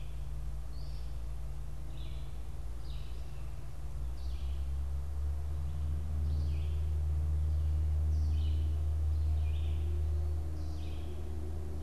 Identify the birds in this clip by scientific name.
Vireo olivaceus